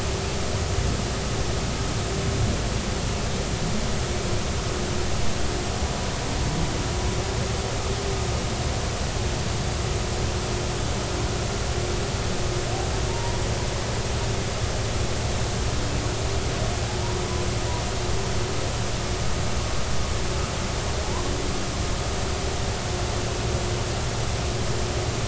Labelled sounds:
13.1	13.4	humpback whale, 0.86 to 0.99 kHz

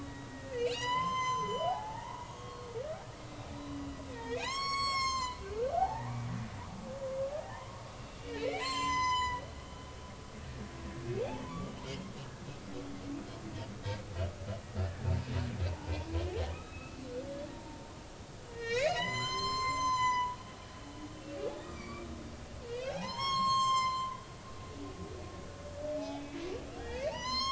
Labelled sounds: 0.0	2.7	humpback whale, 0.80 to 8.0 kHz
3.5	3.8	humpback whale, 3.9 to 4.0 kHz
4.1	5.4	humpback whale, 0.80 to 7.8 kHz
5.7	6.2	humpback whale, 0.80 to 2.0 kHz
7.3	10.4	humpback whale, 0.80 to 8.0 kHz
11.5	12.1	humpback whale, 0.93 to 2.3 kHz
14.8	15.0	humpback whale, 1.6 to 1.8 kHz
16.5	17.0	humpback whale, 2.4 to 3.9 kHz
18.5	20.4	humpback whale, 0.86 to 8.0 kHz
21.4	24.2	humpback whale, 0.80 to 7.7 kHz
26.0	26.4	humpback whale, 0.80 to 3.5 kHz
26.8	27.4	humpback whale, 0.80 to 7.6 kHz

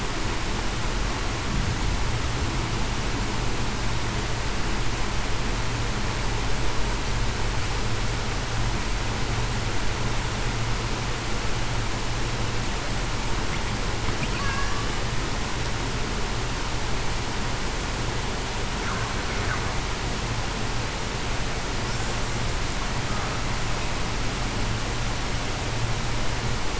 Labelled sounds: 14.4	14.8	killer whale, Bigg's (transient), 1.6 to 1.8 kHz

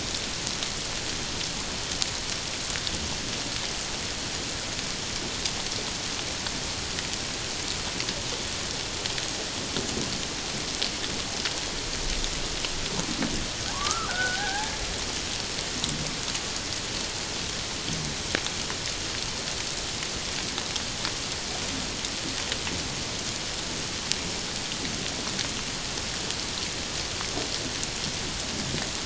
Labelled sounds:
13.7	14.7	killer whale, Bigg's (transient), 0.78 to 1.8 kHz

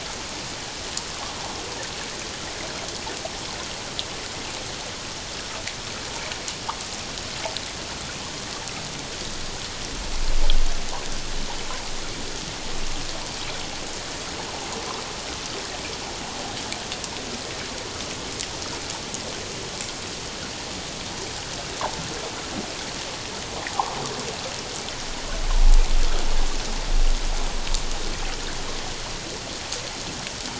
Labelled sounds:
23.7	24.0	water noise, 0.78 to 1.2 kHz

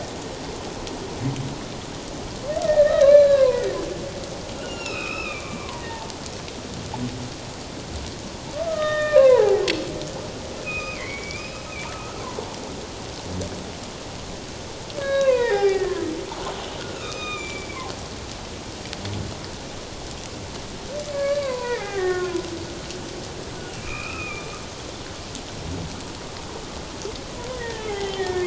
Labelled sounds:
2.6	3.8	humpback whale, 0.94 to 4.1 kHz
4.6	6.1	humpback whale, 0.84 to 5.7 kHz
8.6	9.6	humpback whale, 0.78 to 3.7 kHz
10.6	12.3	humpback whale, 1.1 to 5.2 kHz
15.0	16.0	humpback whale, 0.78 to 5.3 kHz
16.8	17.8	humpback whale, 1.2 to 7.2 kHz
21.1	22.4	humpback whale, 0.78 to 2.7 kHz
23.7	24.5	humpback whale, 1.1 to 2.9 kHz
27.5	28.4	humpback whale, 1.7 to 2.2 kHz

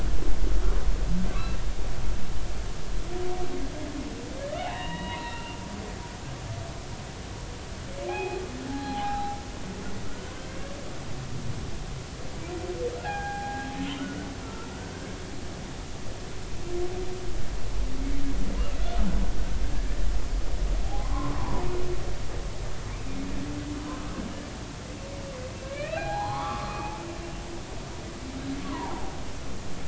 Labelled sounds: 1.3	1.6	humpback whale, 1.1 to 1.4 kHz
4.5	5.6	humpback whale, 0.80 to 4.2 kHz
8.1	9.4	humpback whale, 0.80 to 3.4 kHz
13.0	14.7	humpback whale, 0.80 to 1.9 kHz
21.0	21.6	humpback whale, 0.80 to 1.2 kHz
25.6	26.9	humpback whale, 0.80 to 4.3 kHz
28.6	28.9	humpback whale, 0.80 to 1.2 kHz

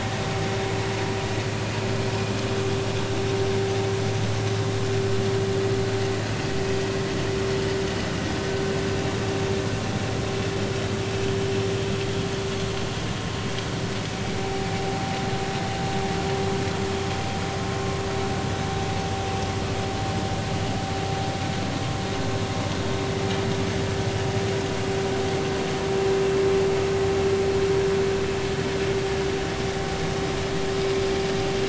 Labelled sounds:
7.5	7.8	vessel noise, 5.0 to 5.1 kHz
14.7	15.1	vessel noise, 0.80 to 0.86 kHz

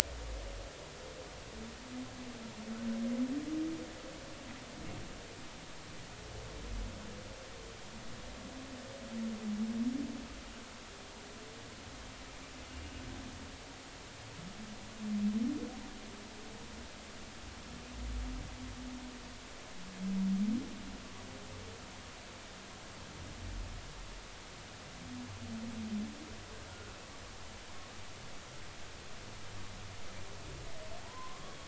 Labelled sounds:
26.7	26.9	humpback whale, 1.3 to 1.5 kHz
31.0	31.4	humpback whale, 0.80 to 1.2 kHz

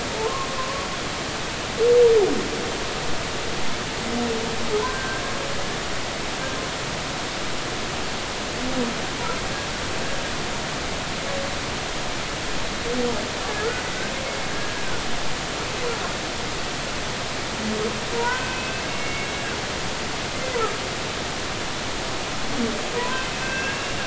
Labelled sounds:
0.2	0.9	humpback whale, 0.99 to 1.2 kHz
4.8	5.2	humpback whale, 1.5 to 1.6 kHz
18.1	19.3	humpback whale, 0.90 to 2.8 kHz
22.9	24.0	humpback whale, 0.93 to 2.8 kHz

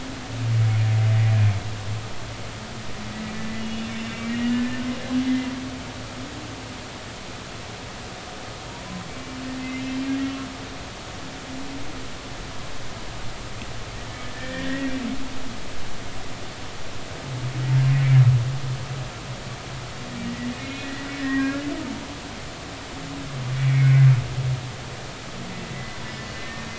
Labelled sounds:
3.6	4.8	humpback whale, 1.7 to 3.7 kHz
9.6	9.8	humpback whale, 2.0 to 2.2 kHz
14.3	14.9	humpback whale, 1.6 to 2.0 kHz
20.2	21.6	humpback whale, 1.5 to 4.2 kHz
23.6	24.1	humpback whale, 1.9 to 2.3 kHz

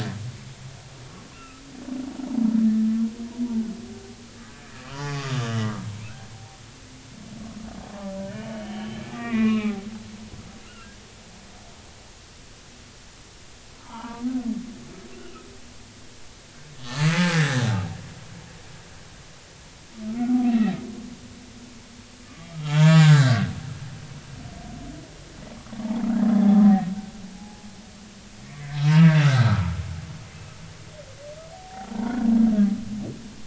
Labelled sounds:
1.3	1.6	humpback whale, 1.2 to 2.8 kHz
4.8	5.5	humpback whale, 0.80 to 1.5 kHz
5.9	6.6	humpback whale, 0.80 to 2.7 kHz
8.2	9.8	humpback whale, 0.99 to 3.2 kHz
10.6	10.9	humpback whale, 1.2 to 1.5 kHz
13.8	14.2	humpback whale, 0.83 to 1.4 kHz
17.1	17.8	humpback whale, 1.4 to 3.8 kHz
20.4	20.8	humpback whale, 1.8 to 2.8 kHz
22.2	23.5	humpback whale, 0.83 to 7.4 kHz
26.4	26.8	humpback whale, 0.80 to 0.86 kHz
27.3	27.7	humpback whale, 0.80 to 0.90 kHz
28.9	29.8	humpback whale, 0.86 to 1.6 kHz
31.5	32.3	humpback whale, 0.80 to 1.6 kHz

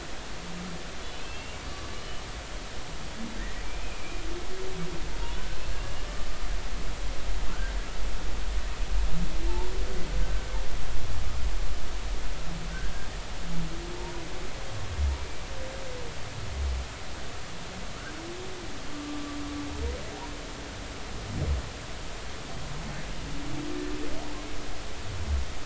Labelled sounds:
1.1	1.6	humpback whale, 2.4 to 2.9 kHz
3.8	4.2	humpback whale, 2.3 to 2.6 kHz
5.2	5.8	humpback whale, 2.8 to 4.4 kHz
7.5	7.8	humpback whale, 1.3 to 1.6 kHz
12.7	13.1	humpback whale, 1.5 to 1.7 kHz
18.9	19.2	humpback whale, 1.1 to 1.2 kHz

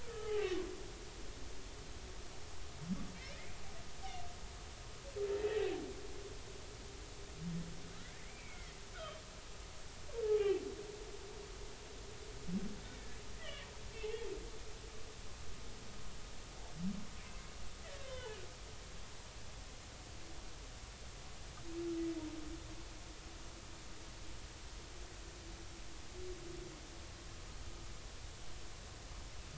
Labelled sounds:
0.0	0.7	humpback whale, 0.99 to 3.2 kHz
8.2	9.2	humpback whale, 1.1 to 3.3 kHz
13.9	14.2	humpback whale, 2.5 to 2.9 kHz
17.8	18.4	humpback whale, 0.83 to 3.9 kHz

